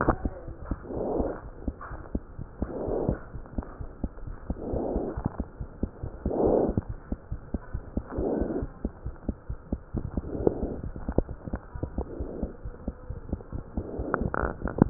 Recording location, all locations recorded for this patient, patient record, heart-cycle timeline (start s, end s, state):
aortic valve (AV)
aortic valve (AV)+pulmonary valve (PV)+tricuspid valve (TV)+mitral valve (MV)
#Age: Child
#Sex: Female
#Height: 83.0 cm
#Weight: 10.5 kg
#Pregnancy status: False
#Murmur: Absent
#Murmur locations: nan
#Most audible location: nan
#Systolic murmur timing: nan
#Systolic murmur shape: nan
#Systolic murmur grading: nan
#Systolic murmur pitch: nan
#Systolic murmur quality: nan
#Diastolic murmur timing: nan
#Diastolic murmur shape: nan
#Diastolic murmur grading: nan
#Diastolic murmur pitch: nan
#Diastolic murmur quality: nan
#Outcome: Normal
#Campaign: 2015 screening campaign
0.00	8.70	unannotated
8.70	8.82	systole
8.82	8.89	S2
8.89	9.04	diastole
9.04	9.12	S1
9.12	9.27	systole
9.27	9.33	S2
9.33	9.49	diastole
9.49	9.55	S1
9.55	9.70	systole
9.70	9.76	S2
9.76	9.92	diastole
9.92	10.02	S1
10.02	10.14	systole
10.14	10.21	S2
10.21	11.27	unannotated
11.27	11.38	S1
11.38	11.51	systole
11.51	11.59	S2
11.59	11.72	diastole
11.72	11.82	S1
11.82	11.95	systole
11.95	12.02	S2
12.02	12.17	diastole
12.17	12.25	S1
12.25	12.39	systole
12.39	12.48	S2
12.48	12.60	diastole
12.60	12.71	S1
12.71	12.85	systole
12.85	12.93	S2
12.93	13.08	diastole
13.08	13.15	S1
13.15	13.29	systole
13.29	13.37	S2
13.37	13.49	diastole
13.49	13.61	S1
13.61	13.74	systole
13.74	13.82	S2
13.82	14.00	diastole
14.00	14.90	unannotated